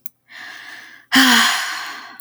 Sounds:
Sigh